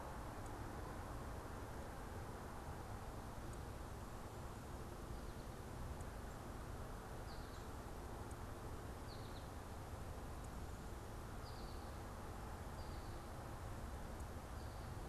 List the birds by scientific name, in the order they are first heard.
Spinus tristis